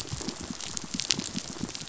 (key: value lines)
label: biophony, pulse
recorder: SoundTrap 500